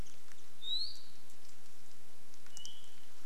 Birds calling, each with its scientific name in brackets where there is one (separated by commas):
Apapane (Himatione sanguinea), Iiwi (Drepanis coccinea)